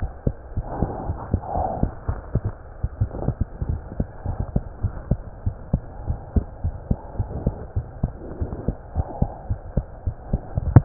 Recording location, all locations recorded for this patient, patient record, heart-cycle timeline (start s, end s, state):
aortic valve (AV)
aortic valve (AV)+pulmonary valve (PV)+tricuspid valve (TV)+mitral valve (MV)
#Age: Child
#Sex: Female
#Height: 95.0 cm
#Weight: 13.6 kg
#Pregnancy status: False
#Murmur: Absent
#Murmur locations: nan
#Most audible location: nan
#Systolic murmur timing: nan
#Systolic murmur shape: nan
#Systolic murmur grading: nan
#Systolic murmur pitch: nan
#Systolic murmur quality: nan
#Diastolic murmur timing: nan
#Diastolic murmur shape: nan
#Diastolic murmur grading: nan
#Diastolic murmur pitch: nan
#Diastolic murmur quality: nan
#Outcome: Abnormal
#Campaign: 2015 screening campaign
0.00	3.66	unannotated
3.66	3.82	S1
3.82	3.96	systole
3.96	4.08	S2
4.08	4.26	diastole
4.26	4.38	S1
4.38	4.54	systole
4.54	4.64	S2
4.64	4.82	diastole
4.82	4.96	S1
4.96	5.10	systole
5.10	5.22	S2
5.22	5.44	diastole
5.44	5.56	S1
5.56	5.70	systole
5.70	5.82	S2
5.82	6.02	diastole
6.02	6.18	S1
6.18	6.32	systole
6.32	6.48	S2
6.48	6.63	diastole
6.63	6.74	S1
6.74	6.86	systole
6.86	7.00	S2
7.00	7.17	diastole
7.17	7.27	S1
7.27	7.45	systole
7.45	7.55	S2
7.55	7.74	diastole
7.74	7.86	S1
7.86	8.02	systole
8.02	8.14	S2
8.14	8.36	diastole
8.36	8.50	S1
8.50	8.64	systole
8.64	8.76	S2
8.76	8.96	diastole
8.96	9.06	S1
9.06	9.18	systole
9.18	9.30	S2
9.30	9.48	diastole
9.48	9.60	S1
9.60	9.76	systole
9.76	9.86	S2
9.86	10.04	diastole
10.04	10.14	S1
10.14	10.85	unannotated